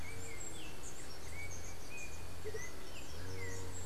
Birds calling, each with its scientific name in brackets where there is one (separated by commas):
Yellow-backed Oriole (Icterus chrysater), unidentified bird, White-tipped Dove (Leptotila verreauxi), Andean Motmot (Momotus aequatorialis)